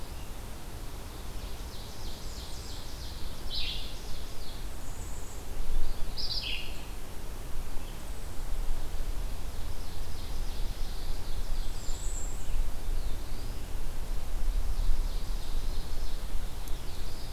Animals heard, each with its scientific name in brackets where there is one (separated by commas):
Ovenbird (Seiurus aurocapilla), Eastern Wood-Pewee (Contopus virens), Blue-headed Vireo (Vireo solitarius), Bay-breasted Warbler (Setophaga castanea), Black-throated Blue Warbler (Setophaga caerulescens)